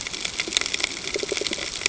{"label": "ambient", "recorder": "HydroMoth"}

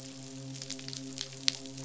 {"label": "biophony, midshipman", "recorder": "SoundTrap 500"}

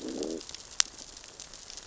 {"label": "biophony, growl", "recorder": "SoundTrap 600 or HydroMoth"}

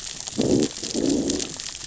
{"label": "biophony, growl", "recorder": "SoundTrap 600 or HydroMoth"}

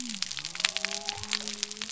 {"label": "biophony", "recorder": "SoundTrap 300"}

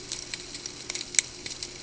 {"label": "ambient", "recorder": "HydroMoth"}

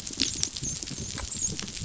{"label": "biophony, dolphin", "recorder": "SoundTrap 500"}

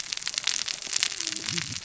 {"label": "biophony, cascading saw", "recorder": "SoundTrap 600 or HydroMoth"}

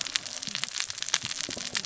{"label": "biophony, cascading saw", "recorder": "SoundTrap 600 or HydroMoth"}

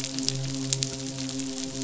{"label": "biophony, midshipman", "recorder": "SoundTrap 500"}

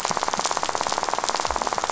{"label": "biophony, rattle", "recorder": "SoundTrap 500"}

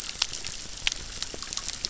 {"label": "biophony, crackle", "recorder": "SoundTrap 600"}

